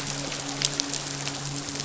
{"label": "biophony, midshipman", "recorder": "SoundTrap 500"}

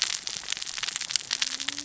{"label": "biophony, cascading saw", "recorder": "SoundTrap 600 or HydroMoth"}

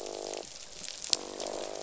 {"label": "biophony, croak", "recorder": "SoundTrap 500"}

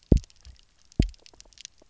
{"label": "biophony, double pulse", "recorder": "SoundTrap 300"}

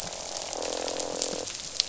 {"label": "biophony, croak", "recorder": "SoundTrap 500"}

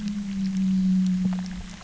{"label": "anthrophony, boat engine", "recorder": "SoundTrap 300"}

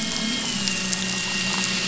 {"label": "anthrophony, boat engine", "recorder": "SoundTrap 500"}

